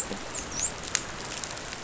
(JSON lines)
{"label": "biophony, dolphin", "recorder": "SoundTrap 500"}